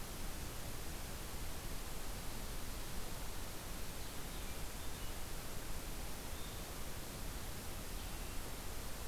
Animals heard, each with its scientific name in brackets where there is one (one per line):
Blue-headed Vireo (Vireo solitarius)
Swainson's Thrush (Catharus ustulatus)